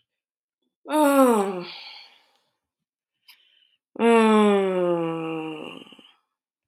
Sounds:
Sigh